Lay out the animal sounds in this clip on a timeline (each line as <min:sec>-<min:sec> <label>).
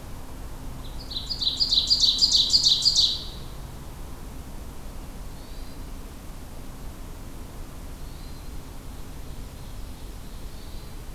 0:00.8-0:03.5 Ovenbird (Seiurus aurocapilla)
0:02.9-0:03.5 Hermit Thrush (Catharus guttatus)
0:05.4-0:05.8 Hermit Thrush (Catharus guttatus)
0:07.9-0:08.5 Hermit Thrush (Catharus guttatus)
0:08.8-0:10.9 Ovenbird (Seiurus aurocapilla)
0:10.5-0:11.1 Hermit Thrush (Catharus guttatus)